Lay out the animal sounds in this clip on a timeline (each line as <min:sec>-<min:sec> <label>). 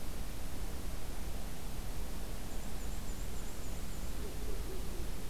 0:02.4-0:04.3 Black-and-white Warbler (Mniotilta varia)